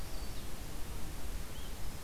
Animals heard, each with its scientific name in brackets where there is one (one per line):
Red-eyed Vireo (Vireo olivaceus)
Yellow-rumped Warbler (Setophaga coronata)